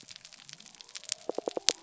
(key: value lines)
label: biophony
recorder: SoundTrap 300